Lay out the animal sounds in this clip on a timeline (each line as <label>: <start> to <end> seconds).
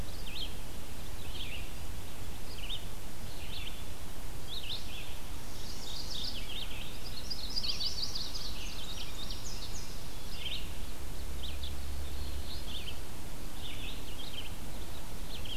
Red-eyed Vireo (Vireo olivaceus): 0.0 to 15.6 seconds
Mourning Warbler (Geothlypis philadelphia): 5.7 to 6.6 seconds
Indigo Bunting (Passerina cyanea): 6.9 to 10.0 seconds
Yellow-rumped Warbler (Setophaga coronata): 7.2 to 8.7 seconds